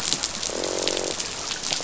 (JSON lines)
{"label": "biophony, croak", "recorder": "SoundTrap 500"}